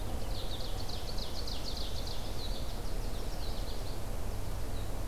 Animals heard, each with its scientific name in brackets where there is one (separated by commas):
Ovenbird (Seiurus aurocapilla), American Goldfinch (Spinus tristis)